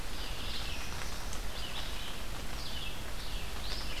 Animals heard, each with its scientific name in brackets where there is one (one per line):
Northern Parula (Setophaga americana)
Red-eyed Vireo (Vireo olivaceus)